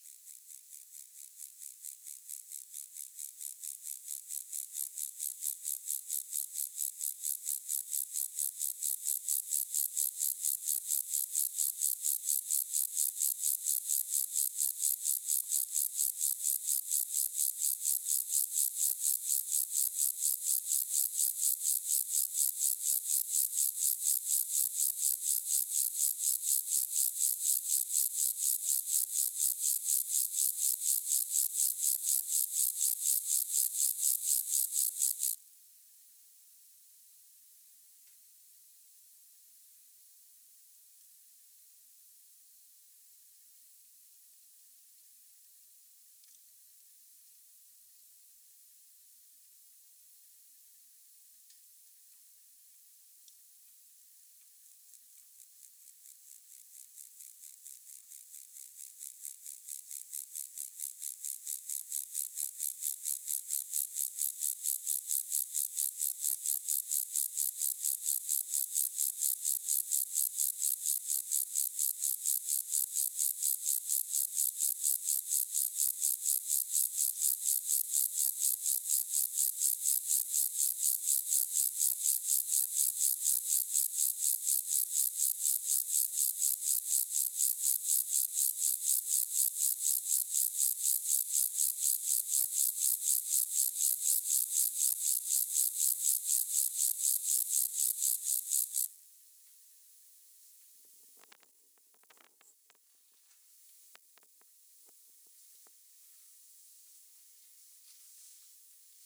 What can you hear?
Chorthippus vagans, an orthopteran